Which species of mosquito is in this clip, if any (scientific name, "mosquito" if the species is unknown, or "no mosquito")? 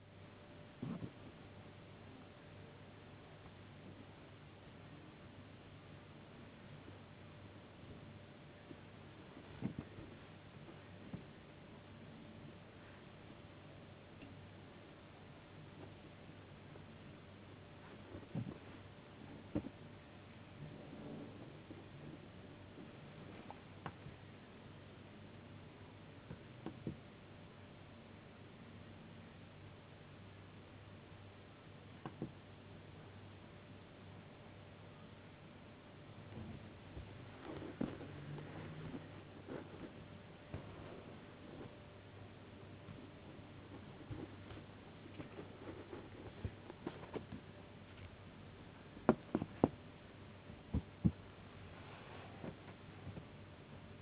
no mosquito